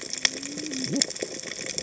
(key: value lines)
label: biophony, cascading saw
recorder: HydroMoth